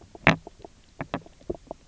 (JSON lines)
{"label": "biophony, knock croak", "recorder": "SoundTrap 300"}